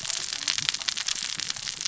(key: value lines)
label: biophony, cascading saw
recorder: SoundTrap 600 or HydroMoth